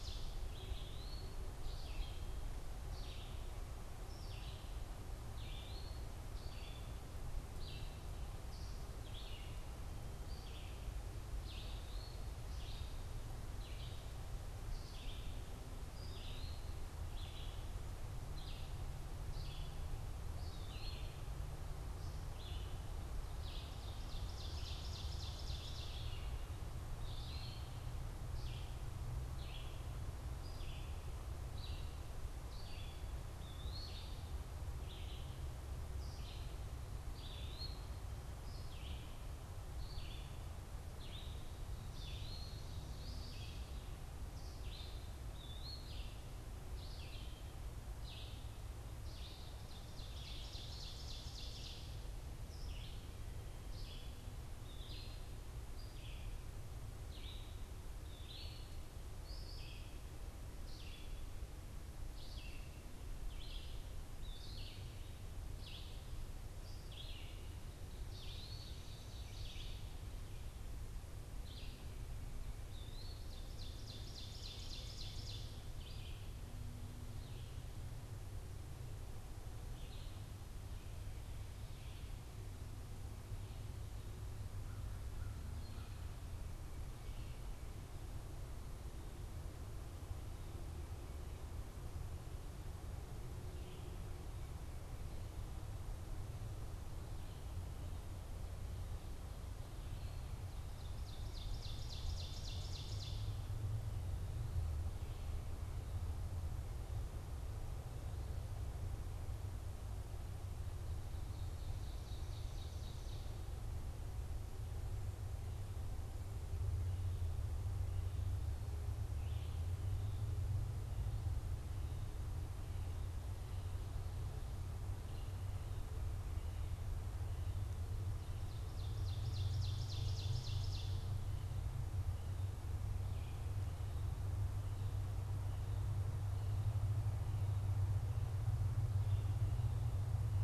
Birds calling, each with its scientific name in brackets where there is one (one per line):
American Crow (Corvus brachyrhynchos)
Ovenbird (Seiurus aurocapilla)
Eastern Wood-Pewee (Contopus virens)
Red-eyed Vireo (Vireo olivaceus)